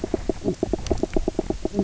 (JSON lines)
{"label": "biophony, knock croak", "recorder": "SoundTrap 300"}